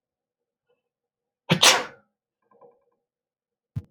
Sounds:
Sneeze